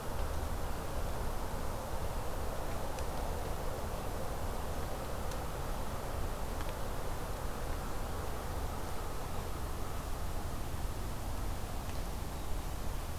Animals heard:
forest ambience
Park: Acadia National Park